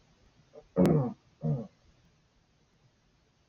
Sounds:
Throat clearing